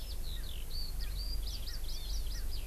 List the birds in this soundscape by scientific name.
Alauda arvensis, Pternistis erckelii, Chlorodrepanis virens